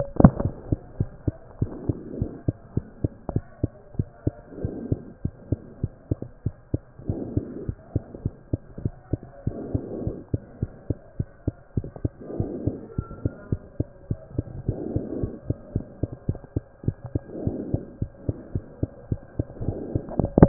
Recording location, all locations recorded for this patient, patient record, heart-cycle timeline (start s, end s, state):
mitral valve (MV)
aortic valve (AV)+mitral valve (MV)
#Age: Child
#Sex: Male
#Height: 82.0 cm
#Weight: 12.7 kg
#Pregnancy status: False
#Murmur: Absent
#Murmur locations: nan
#Most audible location: nan
#Systolic murmur timing: nan
#Systolic murmur shape: nan
#Systolic murmur grading: nan
#Systolic murmur pitch: nan
#Systolic murmur quality: nan
#Diastolic murmur timing: nan
#Diastolic murmur shape: nan
#Diastolic murmur grading: nan
#Diastolic murmur pitch: nan
#Diastolic murmur quality: nan
#Outcome: Normal
#Campaign: 2014 screening campaign
0.00	0.04	diastole
0.04	0.06	S1
0.06	0.18	systole
0.18	0.26	S2
0.26	0.42	diastole
0.42	0.52	S1
0.52	0.70	systole
0.70	0.76	S2
0.76	0.98	diastole
0.98	1.10	S1
1.10	1.26	systole
1.26	1.34	S2
1.34	1.60	diastole
1.60	1.72	S1
1.72	1.86	systole
1.86	1.96	S2
1.96	2.18	diastole
2.18	2.30	S1
2.30	2.46	systole
2.46	2.56	S2
2.56	2.76	diastole
2.76	2.86	S1
2.86	3.02	systole
3.02	3.12	S2
3.12	3.32	diastole
3.32	3.44	S1
3.44	3.62	systole
3.62	3.72	S2
3.72	3.98	diastole
3.98	4.08	S1
4.08	4.24	systole
4.24	4.34	S2
4.34	4.62	diastole
4.62	4.74	S1
4.74	4.90	systole
4.90	5.00	S2
5.00	5.24	diastole
5.24	5.34	S1
5.34	5.50	systole
5.50	5.60	S2
5.60	5.82	diastole
5.82	5.92	S1
5.92	6.10	systole
6.10	6.18	S2
6.18	6.44	diastole
6.44	6.54	S1
6.54	6.72	systole
6.72	6.82	S2
6.82	7.08	diastole
7.08	7.22	S1
7.22	7.34	systole
7.34	7.44	S2
7.44	7.66	diastole
7.66	7.76	S1
7.76	7.94	systole
7.94	8.04	S2
8.04	8.24	diastole
8.24	8.34	S1
8.34	8.52	systole
8.52	8.58	S2
8.58	8.82	diastole
8.82	8.94	S1
8.94	9.12	systole
9.12	9.20	S2
9.20	9.46	diastole
9.46	9.58	S1
9.58	9.72	systole
9.72	9.80	S2
9.80	10.02	diastole
10.02	10.16	S1
10.16	10.32	systole
10.32	10.42	S2
10.42	10.60	diastole
10.60	10.72	S1
10.72	10.88	systole
10.88	10.98	S2
10.98	11.18	diastole
11.18	11.28	S1
11.28	11.46	systole
11.46	11.54	S2
11.54	11.76	diastole
11.76	11.88	S1
11.88	12.02	systole
12.02	12.12	S2
12.12	12.38	diastole
12.38	12.50	S1
12.50	12.64	systole
12.64	12.76	S2
12.76	12.98	diastole
12.98	13.08	S1
13.08	13.24	systole
13.24	13.32	S2
13.32	13.50	diastole
13.50	13.60	S1
13.60	13.78	systole
13.78	13.88	S2
13.88	14.10	diastole
14.10	14.20	S1
14.20	14.36	systole
14.36	14.46	S2
14.46	14.68	diastole
14.68	14.78	S1
14.78	14.92	systole
14.92	15.02	S2
15.02	15.18	diastole
15.18	15.32	S1
15.32	15.48	systole
15.48	15.58	S2
15.58	15.74	diastole
15.74	15.86	S1
15.86	16.00	systole
16.00	16.10	S2
16.10	16.28	diastole
16.28	16.38	S1
16.38	16.54	systole
16.54	16.64	S2
16.64	16.86	diastole
16.86	16.96	S1
16.96	17.12	systole
17.12	17.20	S2
17.20	17.44	diastole
17.44	17.58	S1
17.58	17.72	systole
17.72	17.82	S2
17.82	18.00	diastole
18.00	18.10	S1
18.10	18.26	systole
18.26	18.36	S2
18.36	18.54	diastole
18.54	18.64	S1
18.64	18.80	systole
18.80	18.90	S2
18.90	19.10	diastole
19.10	19.20	S1
19.20	19.36	systole
19.36	19.46	S2
19.46	19.64	diastole
19.64	19.76	S1
19.76	19.92	systole
19.92	20.02	S2
20.02	20.20	diastole
20.20	20.30	S1
20.30	20.38	systole
20.38	20.48	S2